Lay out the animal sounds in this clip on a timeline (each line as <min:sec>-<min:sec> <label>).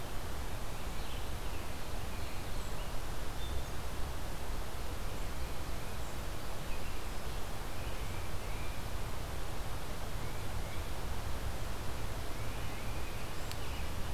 0:00.0-0:03.0 American Robin (Turdus migratorius)
0:07.9-0:08.7 Tufted Titmouse (Baeolophus bicolor)
0:09.9-0:10.9 Tufted Titmouse (Baeolophus bicolor)
0:12.1-0:13.0 Tufted Titmouse (Baeolophus bicolor)